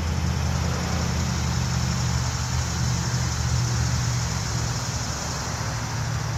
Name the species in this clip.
Neotibicen tibicen